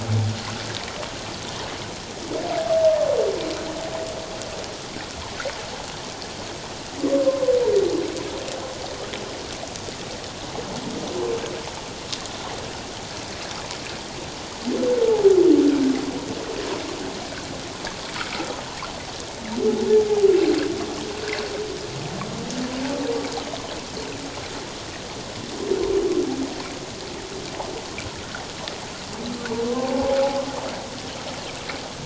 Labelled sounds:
7.1	7.5	humpback whale, 1.0 to 1.2 kHz
29.7	30.2	humpback whale, 0.78 to 1.1 kHz

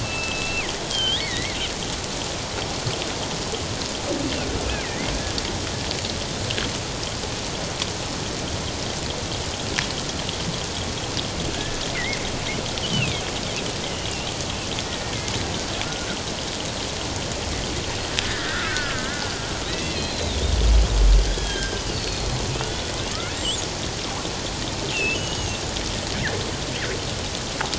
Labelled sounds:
0.0	1.6	killer whale, northern resident, G clan, 1.3 to 3.9 kHz
4.8	5.1	killer whale, northern resident, G clan, 1.8 to 2.2 kHz
11.5	12.2	killer whale, northern resident, G clan, 1.6 to 2.2 kHz
12.8	13.2	killer whale, northern resident, G clan, 2.1 to 3.3 kHz
14.8	15.2	killer whale, northern resident, G clan, 1.8 to 2.0 kHz
18.2	19.3	killer whale, northern resident, G clan, 1.2 to 2.0 kHz
19.7	20.4	killer whale, northern resident, G clan, 1.8 to 4.2 kHz
21.2	22.3	killer whale, northern resident, G clan, 1.5 to 4.6 kHz
24.9	25.6	killer whale, northern resident, G clan, 2.5 to 6.7 kHz

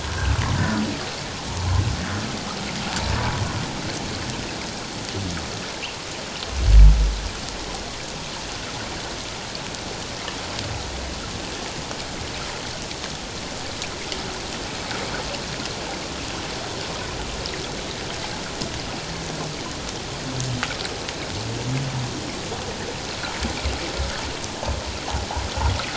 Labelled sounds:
0.6	0.8	humpback whale, 1.4 to 1.6 kHz
1.5	1.8	humpback whale, 0.97 to 1.2 kHz

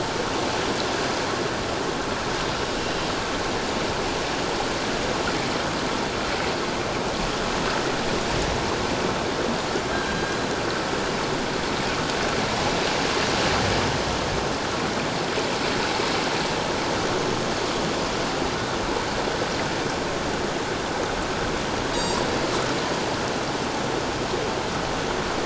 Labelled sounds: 2.8	3.1	killer whale, northern resident, G clan, 2.7 to 4.1 kHz
9.9	10.4	killer whale, northern resident, G clan, 1.5 to 1.7 kHz
21.9	22.2	killer whale, northern resident, G clan, 4.6 to 4.9 kHz

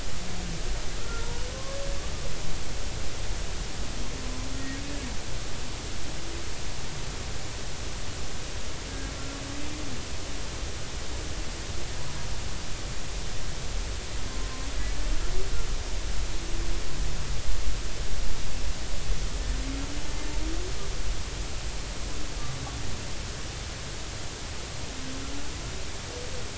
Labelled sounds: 1.0	1.8	humpback whale, 1.0 to 1.4 kHz
14.3	14.7	humpback whale, 0.99 to 1.1 kHz

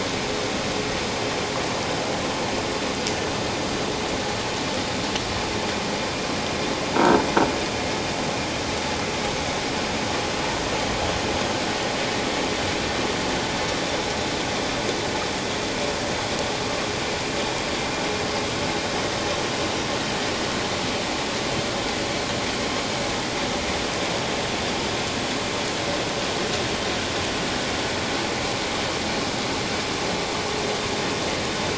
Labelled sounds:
6.9	7.2	croaking sound likely from a nearby submerged object, 1.2 to 1.4 kHz

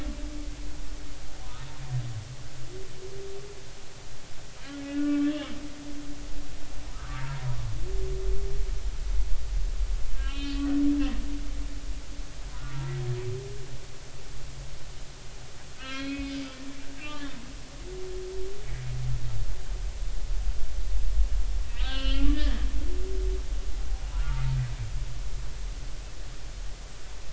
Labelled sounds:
0.5	0.8	humpback whale, 2.3 to 2.5 kHz
4.8	5.4	humpback whale, 1.1 to 3.4 kHz
6.9	7.6	humpback whale, 0.90 to 1.7 kHz
10.2	10.7	humpback whale, 1.0 to 4.3 kHz
12.5	12.9	humpback whale, 1.1 to 1.5 kHz
15.8	16.3	humpback whale, 1.2 to 4.2 kHz
17.0	17.3	humpback whale, 1.1 to 1.3 kHz
21.7	22.7	humpback whale, 1.2 to 4.4 kHz
24.1	24.4	humpback whale, 1.1 to 1.5 kHz

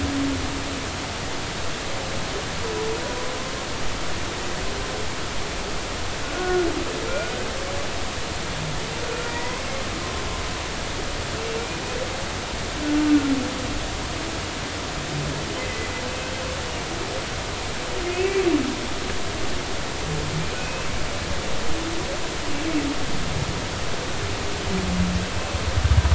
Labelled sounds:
6.3	6.7	humpback whale, 1.3 to 1.5 kHz
7.1	7.3	humpback whale, 1.3 to 1.5 kHz
9.3	9.7	humpback whale, 0.90 to 2.2 kHz
18.0	18.4	humpback whale, 2.1 to 2.4 kHz
20.6	20.9	humpback whale, 2.4 to 2.7 kHz

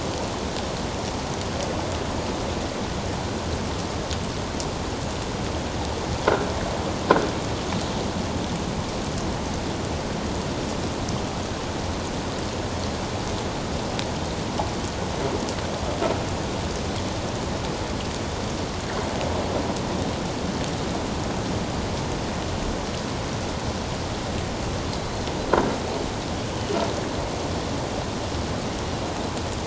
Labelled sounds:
25.0	25.2	humpback whale, 3.9 to 4.3 kHz

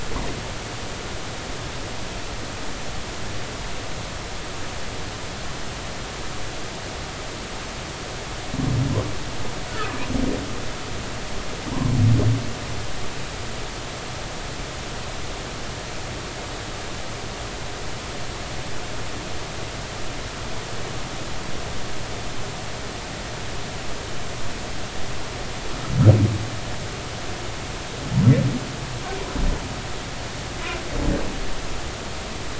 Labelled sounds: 9.7	10.0	humpback whale, 1.1 to 1.5 kHz

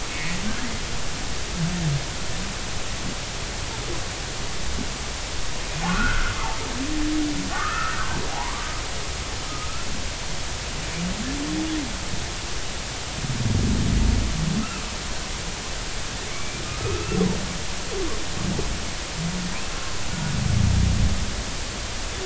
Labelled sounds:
0.1	0.4	humpback whale, 1.8 to 2.6 kHz
5.9	6.3	humpback whale, 1.0 to 2.6 kHz
7.5	8.0	humpback whale, 1.1 to 1.9 kHz
8.3	8.6	humpback whale, 0.80 to 1.2 kHz
9.5	9.9	humpback whale, 1.2 to 1.4 kHz
16.3	17.2	humpback whale, 1.2 to 2.4 kHz

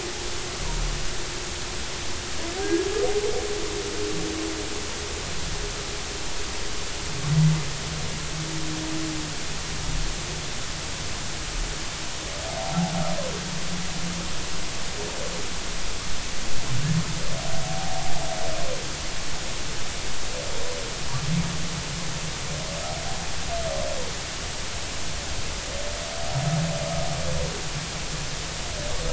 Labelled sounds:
17.6	18.1	humpback whale, 0.80 to 0.86 kHz

